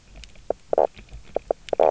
{"label": "biophony, knock croak", "recorder": "SoundTrap 300"}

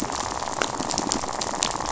{"label": "biophony, rattle", "recorder": "SoundTrap 500"}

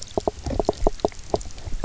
{"label": "biophony, knock croak", "recorder": "SoundTrap 300"}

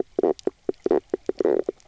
{"label": "biophony, knock croak", "recorder": "SoundTrap 300"}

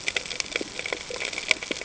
{"label": "ambient", "recorder": "HydroMoth"}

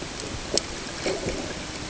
{"label": "ambient", "recorder": "HydroMoth"}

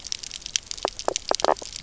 {"label": "biophony, knock croak", "recorder": "SoundTrap 300"}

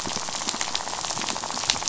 {"label": "biophony, rattle", "recorder": "SoundTrap 500"}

